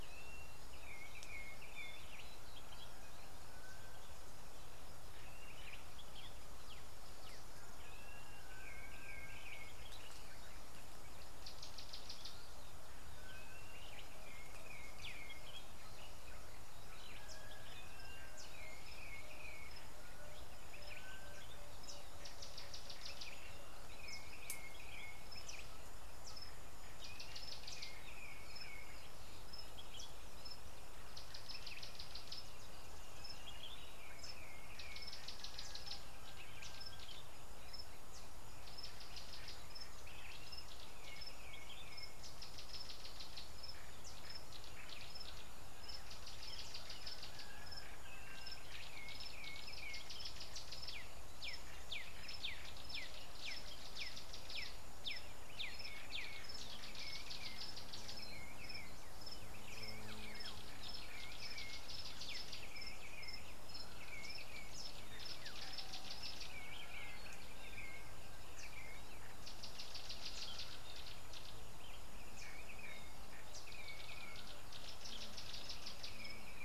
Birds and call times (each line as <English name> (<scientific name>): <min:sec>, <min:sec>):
Variable Sunbird (Cinnyris venustus): 0:11.9
Gray-backed Camaroptera (Camaroptera brevicaudata): 0:46.8, 1:05.9
Black-backed Puffback (Dryoscopus cubla): 0:53.0